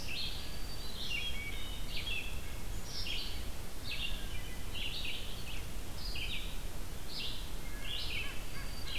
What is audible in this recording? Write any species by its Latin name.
Vireo olivaceus, Setophaga virens, Hylocichla mustelina, Sitta carolinensis